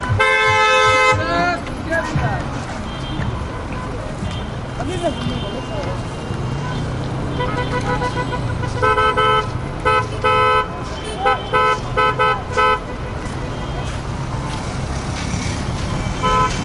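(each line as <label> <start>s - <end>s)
A car horn sounds loudly. 0.0s - 1.6s
Street sounds in the background. 0.0s - 1.6s
A man is speaking. 1.4s - 2.9s
People talking in the background and a man speaking. 2.9s - 8.7s
A car horn beeps loudly and repeatedly while footsteps are heard in the background. 8.7s - 12.8s
Footsteps gradually increase in volume with distant car horns in the background. 12.8s - 16.6s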